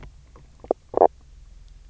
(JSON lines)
{"label": "biophony, knock croak", "recorder": "SoundTrap 300"}